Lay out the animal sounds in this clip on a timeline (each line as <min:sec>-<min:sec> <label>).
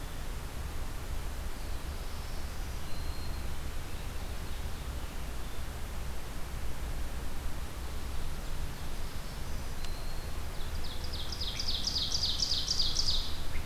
0:01.9-0:03.6 Black-throated Green Warbler (Setophaga virens)
0:03.8-0:04.9 Ovenbird (Seiurus aurocapilla)
0:07.7-0:09.5 Ovenbird (Seiurus aurocapilla)
0:09.1-0:10.5 Black-throated Green Warbler (Setophaga virens)
0:10.4-0:13.7 Ovenbird (Seiurus aurocapilla)